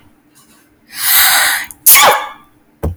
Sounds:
Sneeze